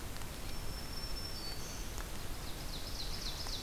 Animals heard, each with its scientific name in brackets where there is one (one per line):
Ovenbird (Seiurus aurocapilla)
Black-throated Green Warbler (Setophaga virens)